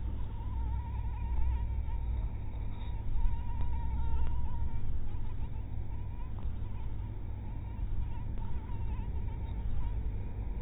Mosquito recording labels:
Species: mosquito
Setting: cup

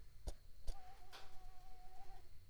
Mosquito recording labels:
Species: Mansonia uniformis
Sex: female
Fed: unfed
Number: one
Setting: cup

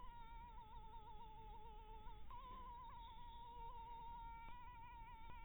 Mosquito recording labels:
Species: Anopheles harrisoni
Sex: female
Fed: blood-fed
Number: one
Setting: cup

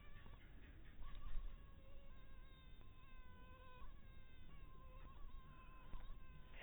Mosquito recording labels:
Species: mosquito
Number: one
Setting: cup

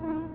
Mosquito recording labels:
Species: Culex tarsalis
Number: one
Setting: insect culture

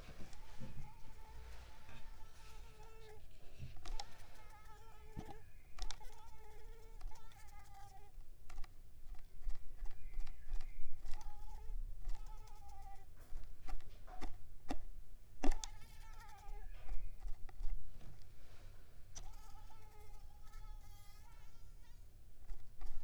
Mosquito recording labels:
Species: Mansonia uniformis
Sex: female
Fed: unfed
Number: one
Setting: cup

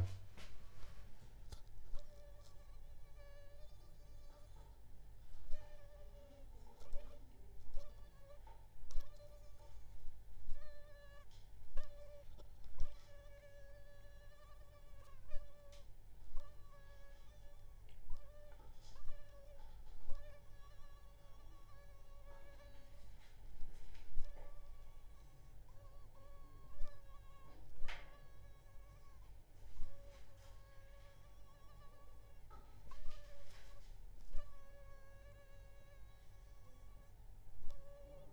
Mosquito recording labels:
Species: Aedes aegypti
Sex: female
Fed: unfed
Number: one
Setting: cup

